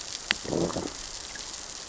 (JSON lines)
{"label": "biophony, growl", "recorder": "SoundTrap 600 or HydroMoth"}